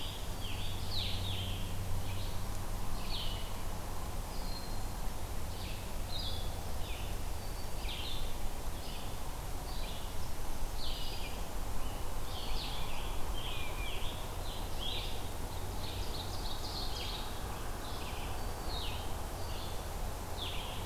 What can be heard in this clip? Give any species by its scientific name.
Piranga olivacea, Vireo solitarius, Seiurus aurocapilla